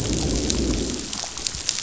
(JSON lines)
{"label": "biophony, growl", "recorder": "SoundTrap 500"}